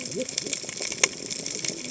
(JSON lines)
{"label": "biophony, cascading saw", "recorder": "HydroMoth"}